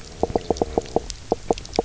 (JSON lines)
{"label": "biophony, knock croak", "recorder": "SoundTrap 300"}